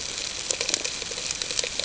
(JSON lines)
{"label": "ambient", "recorder": "HydroMoth"}